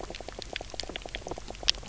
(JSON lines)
{"label": "biophony, knock croak", "recorder": "SoundTrap 300"}